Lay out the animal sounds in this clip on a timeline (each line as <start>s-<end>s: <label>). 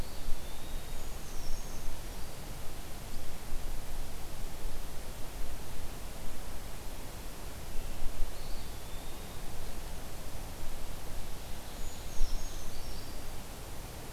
0.0s-1.2s: Eastern Wood-Pewee (Contopus virens)
0.8s-2.5s: Brown Creeper (Certhia americana)
8.2s-9.5s: Eastern Wood-Pewee (Contopus virens)
11.2s-13.1s: Ovenbird (Seiurus aurocapilla)
11.5s-13.7s: Brown Creeper (Certhia americana)